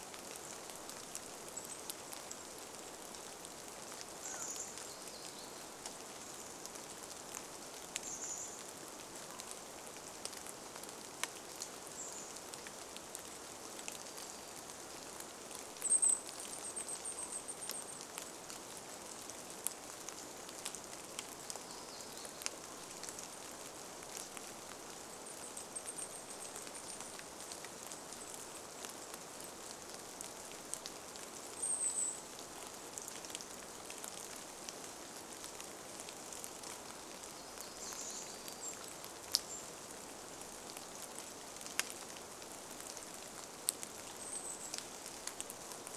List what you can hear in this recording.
Golden-crowned Kinglet song, rain, Chestnut-backed Chickadee call, warbler song, Golden-crowned Kinglet call